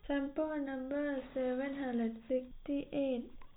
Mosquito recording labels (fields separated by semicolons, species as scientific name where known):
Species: no mosquito; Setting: cup